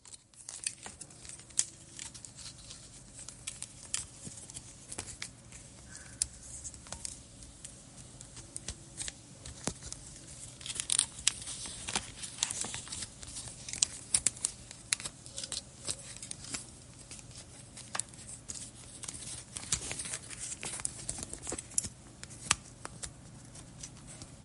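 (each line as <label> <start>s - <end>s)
Sounds of playing with a wooden figure. 0.0s - 24.4s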